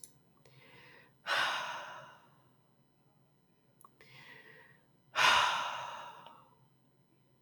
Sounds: Sigh